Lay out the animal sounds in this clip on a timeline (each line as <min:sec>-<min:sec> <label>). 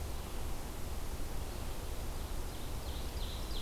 0:01.8-0:03.6 Ovenbird (Seiurus aurocapilla)